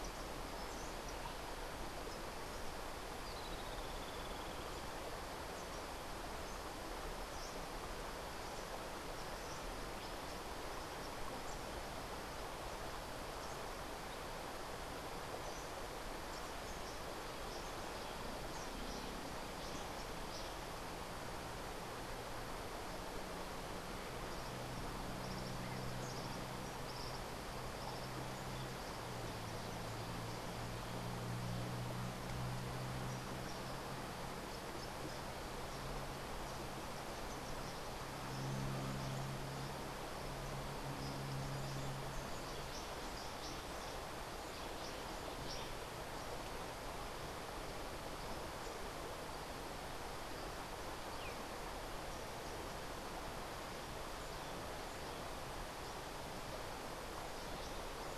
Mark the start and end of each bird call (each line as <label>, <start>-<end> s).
Streak-headed Woodcreeper (Lepidocolaptes souleyetii), 3.2-4.9 s
Cabanis's Wren (Cantorchilus modestus), 24.3-28.2 s
Cabanis's Wren (Cantorchilus modestus), 40.8-45.8 s